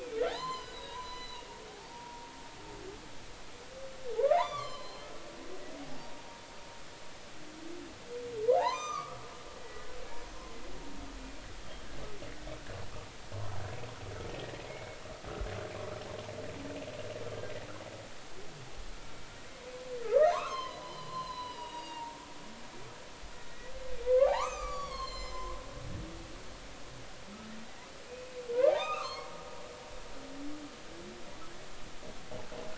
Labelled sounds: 0.3	1.5	humpback whale, 0.80 to 6.2 kHz
1.9	2.3	humpback whale, 0.90 to 0.99 kHz
4.3	5.1	humpback whale, 0.80 to 4.4 kHz
8.5	9.9	humpback whale, 0.80 to 7.4 kHz
14.3	15.0	humpback whale, 1.8 to 2.3 kHz
20.0	22.2	humpback whale, 0.86 to 5.3 kHz
23.3	25.5	humpback whale, 0.80 to 7.4 kHz
28.1	28.4	humpback whale, 2.4 to 2.6 kHz
28.7	29.3	humpback whale, 0.80 to 4.5 kHz

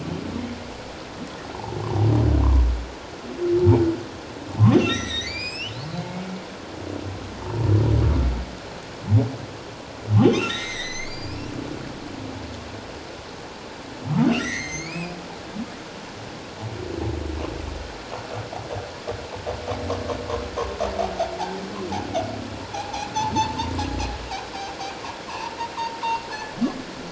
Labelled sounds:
4.7	6.2	humpback whale, 1.8 to 7.9 kHz
7.4	7.7	humpback whale, 0.84 to 1.1 kHz
10.2	11.5	humpback whale, 1.7 to 7.9 kHz
14.3	15.2	humpback whale, 1.8 to 7.1 kHz
22.7	23.1	humpback whale, 0.78 to 0.94 kHz
25.3	25.5	humpback whale, 0.88 to 1.2 kHz
26.3	26.5	humpback whale, 1.6 to 1.8 kHz

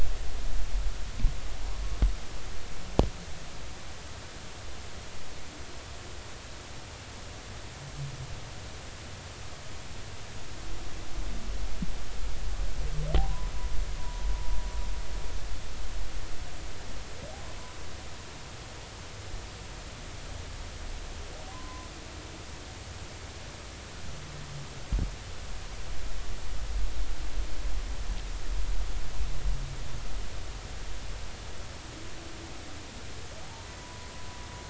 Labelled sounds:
13.2	13.5	humpback whale, 0.80 to 1.1 kHz
14.0	14.2	humpback whale, 0.93 to 1.0 kHz
21.5	21.9	humpback whale, 0.96 to 1.1 kHz
33.8	34.1	humpback whale, 0.93 to 1.1 kHz

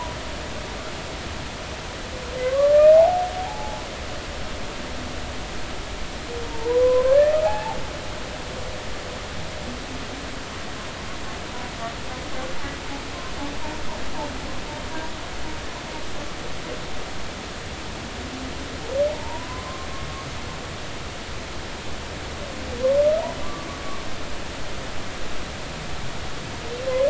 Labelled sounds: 2.4	3.8	humpback whale, 0.80 to 1.9 kHz
6.5	7.8	humpback whale, 0.80 to 2.7 kHz
19.1	19.9	humpback whale, 0.80 to 1.2 kHz
23.4	23.7	humpback whale, 1.1 to 1.2 kHz

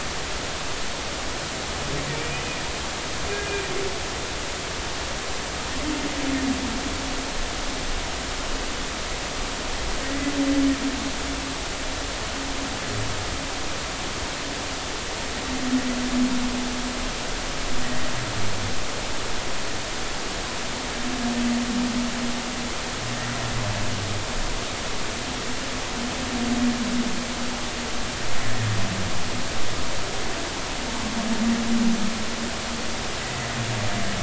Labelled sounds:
2.1	2.4	humpback whale, 2.2 to 2.5 kHz
10.0	10.3	humpback whale, 1.8 to 2.0 kHz
17.8	18.1	humpback whale, 1.8 to 2.0 kHz
33.2	33.5	humpback whale, 1.9 to 2.1 kHz

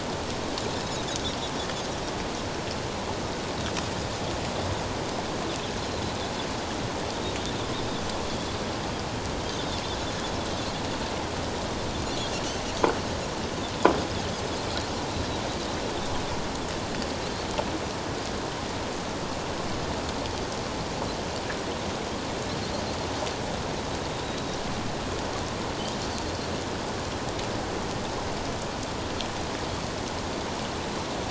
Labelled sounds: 5.8	6.0	Pacific white-sided dolphin, 3.9 to 4.2 kHz
24.2	24.6	Pacific white-sided dolphin, 3.7 to 3.9 kHz

